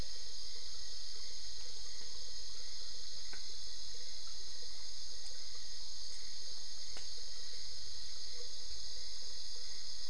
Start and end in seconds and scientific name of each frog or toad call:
none